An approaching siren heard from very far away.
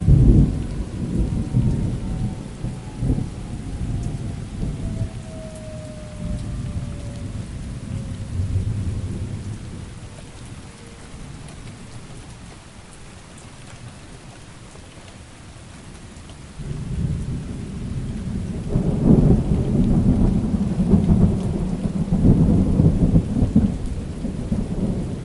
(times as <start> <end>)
3.4 9.5